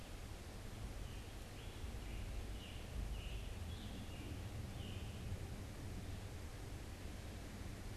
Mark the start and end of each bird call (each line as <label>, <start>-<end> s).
Scarlet Tanager (Piranga olivacea), 0.7-8.0 s